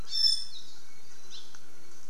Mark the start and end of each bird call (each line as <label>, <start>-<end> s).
Iiwi (Drepanis coccinea), 0.0-0.7 s
Hawaii Creeper (Loxops mana), 1.3-1.5 s